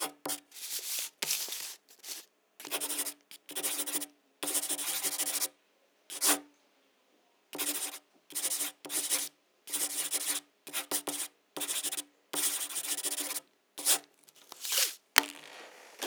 What is the person doing?
writing